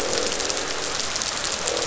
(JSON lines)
{"label": "biophony, croak", "recorder": "SoundTrap 500"}